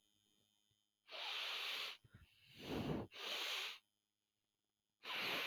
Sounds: Sniff